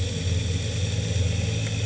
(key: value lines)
label: anthrophony, boat engine
recorder: HydroMoth